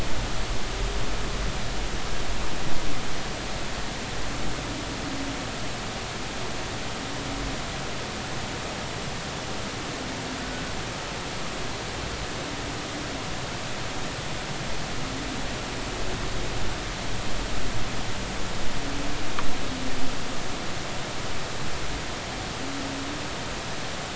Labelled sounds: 10.4	10.6	humpback whale, 1.4 to 1.5 kHz

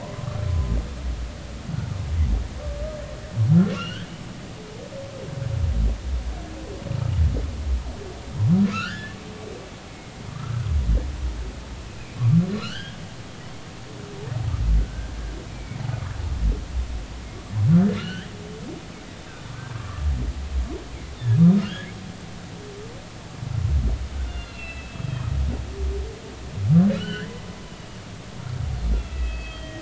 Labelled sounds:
0.0	0.8	humpback whale, 0.90 to 1.1 kHz
3.7	4.1	humpback whale, 1.2 to 3.4 kHz
8.7	9.2	humpback whale, 1.2 to 3.3 kHz
9.9	10.6	humpback whale, 1.1 to 2.2 kHz
12.5	13.0	humpback whale, 1.2 to 4.2 kHz
14.8	15.8	humpback whale, 1.4 to 2.4 kHz
18.0	18.3	humpback whale, 1.3 to 3.3 kHz
19.3	20.0	humpback whale, 1.0 to 3.7 kHz
21.6	21.9	humpback whale, 1.2 to 3.4 kHz
24.2	25.3	humpback whale, 2.4 to 4.2 kHz
27.0	27.3	humpback whale, 1.3 to 4.6 kHz
28.9	29.8	humpback whale, 1.8 to 4.6 kHz

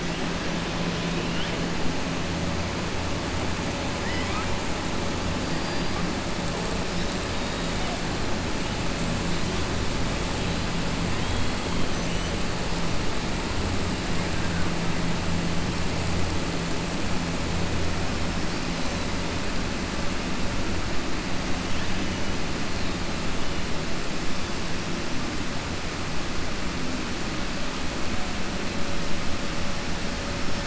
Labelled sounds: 3.9	4.5	killer whale, 1.2 to 3.1 kHz

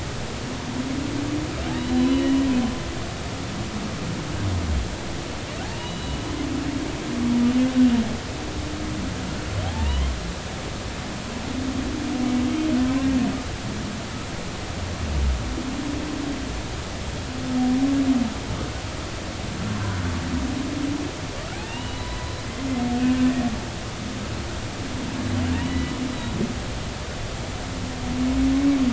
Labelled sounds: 1.7	2.4	humpback whale, 2.9 to 4.1 kHz
5.6	6.2	humpback whale, 0.80 to 4.0 kHz
9.7	10.2	humpback whale, 0.80 to 1.2 kHz
19.7	20.0	humpback whale, 0.96 to 1.1 kHz
21.5	22.2	humpback whale, 0.80 to 4.0 kHz
25.6	25.9	humpback whale, 1.9 to 3.0 kHz

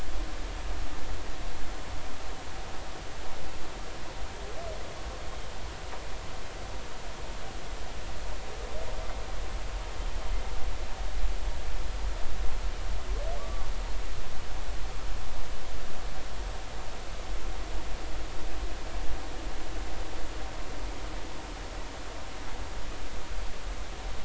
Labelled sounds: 13.4	13.7	humpback whale, 1.1 to 1.2 kHz

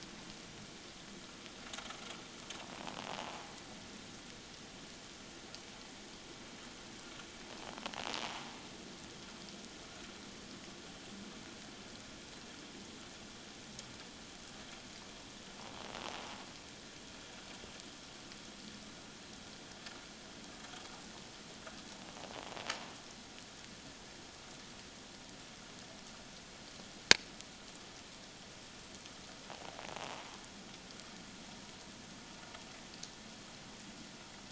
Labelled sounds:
30.0	30.2	invertebrate grinding on or near the hydrophone, 0.78 to 1.1 kHz

